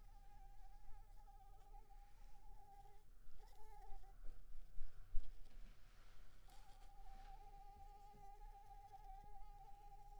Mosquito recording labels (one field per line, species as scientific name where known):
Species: Anopheles arabiensis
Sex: female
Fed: unfed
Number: one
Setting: cup